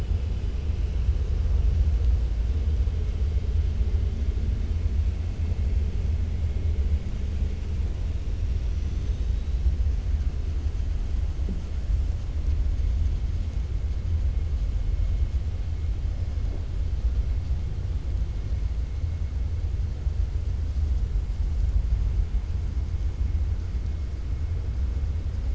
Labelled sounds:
8.5	9.6	killer whale, 3.3 to 6.2 kHz

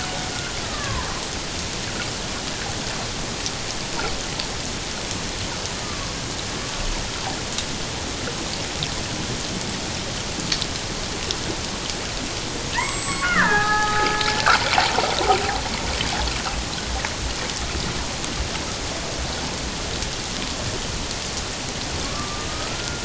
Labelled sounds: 0.7	1.1	killer whale, Bigg's (transient), 0.91 to 1.8 kHz
5.8	6.1	killer whale, Bigg's (transient), 1.0 to 1.3 kHz
12.7	14.2	killer whale, Bigg's (transient), 0.78 to 7.8 kHz
22.0	23.0	killer whale, Bigg's (transient), 1.1 to 1.6 kHz

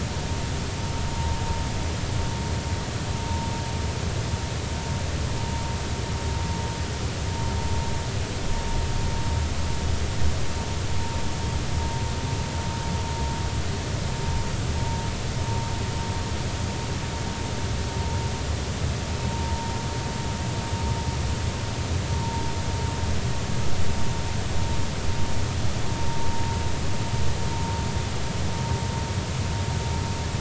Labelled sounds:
19.3	19.7	vessel noise, 0.86 to 0.99 kHz

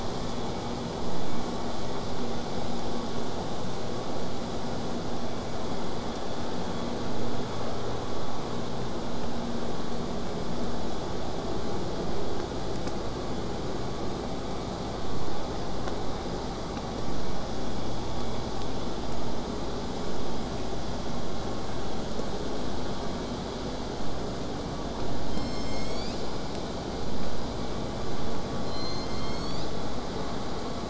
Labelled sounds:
25.3	26.4	killer whale, southern resident, J pod, call S01, 1.9 to 8.0 kHz
28.6	29.9	killer whale, southern resident, J pod, call S01, 2.0 to 8.0 kHz

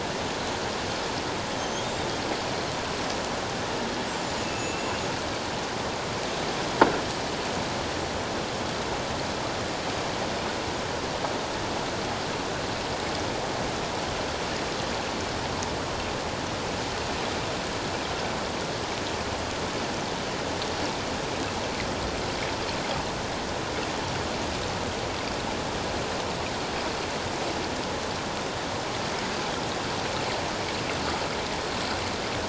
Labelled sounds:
1.6	2.1	killer whale, 3.6 to 6.6 kHz
4.4	4.9	killer whale, 2.5 to 2.8 kHz

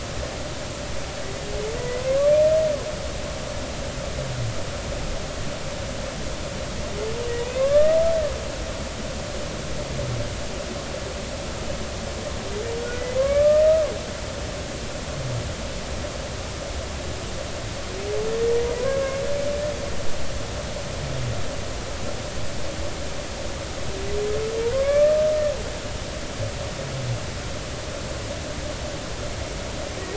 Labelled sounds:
1.8	2.0	humpback whale, 1.9 to 2.0 kHz
7.4	8.0	humpback whale, 1.0 to 2.8 kHz
13.2	13.6	humpback whale, 1.0 to 1.8 kHz
18.8	19.0	humpback whale, 0.93 to 1.1 kHz
24.7	25.1	humpback whale, 1.0 to 2.4 kHz

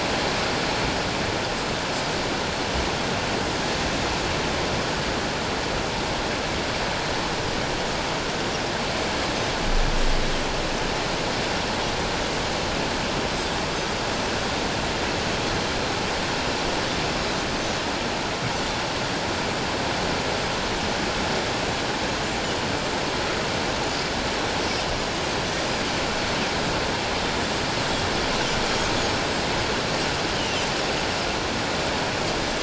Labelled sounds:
30.4	30.6	Pacific white-sided dolphin, 2.7 to 3.2 kHz

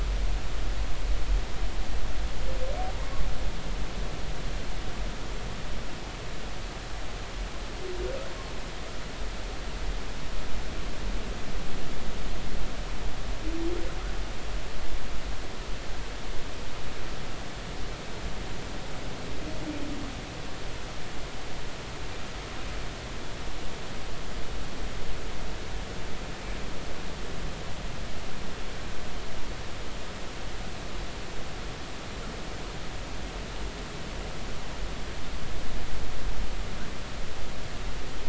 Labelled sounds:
2.9	3.2	humpback whale, 0.90 to 1.2 kHz

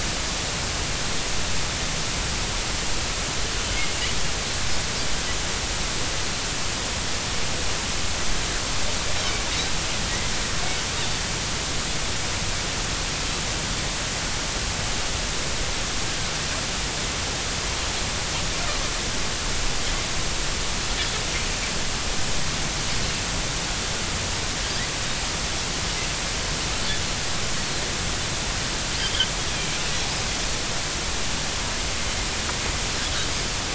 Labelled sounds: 27.6	27.8	Pacific white-sided dolphin, 3.9 to 4.5 kHz
29.5	29.8	Pacific white-sided dolphin, 2.2 to 2.5 kHz

